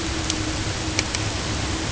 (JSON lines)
{"label": "ambient", "recorder": "HydroMoth"}